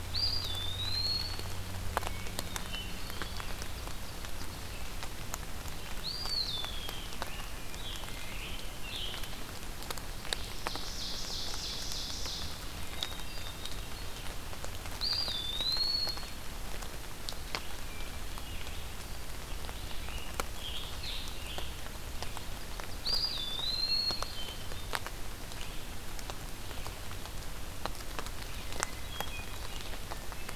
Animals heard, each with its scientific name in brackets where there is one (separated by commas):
Hermit Thrush (Catharus guttatus), Eastern Wood-Pewee (Contopus virens), Scarlet Tanager (Piranga olivacea), Ovenbird (Seiurus aurocapilla)